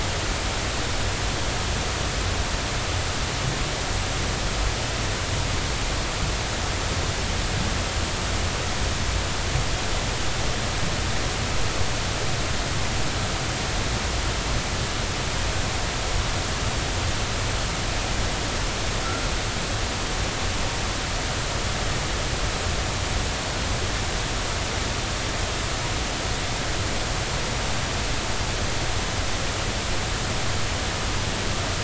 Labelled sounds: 19.0	19.3	humpback whale, 1.3 to 1.5 kHz

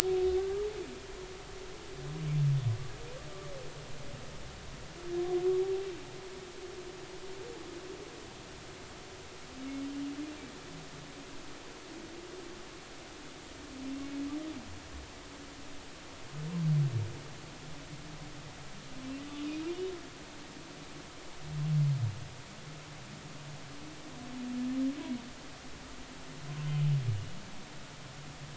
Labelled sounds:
0.4	0.7	humpback whale, 1.1 to 1.3 kHz

